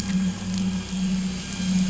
{"label": "anthrophony, boat engine", "recorder": "SoundTrap 500"}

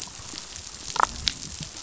{"label": "biophony, damselfish", "recorder": "SoundTrap 500"}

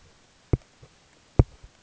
{"label": "ambient", "recorder": "HydroMoth"}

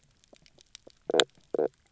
{"label": "biophony, knock croak", "recorder": "SoundTrap 300"}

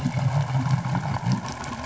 {"label": "anthrophony, boat engine", "recorder": "SoundTrap 500"}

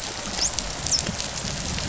{"label": "biophony, dolphin", "recorder": "SoundTrap 500"}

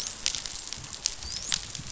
{"label": "biophony, dolphin", "recorder": "SoundTrap 500"}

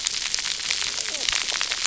{"label": "biophony, cascading saw", "recorder": "SoundTrap 300"}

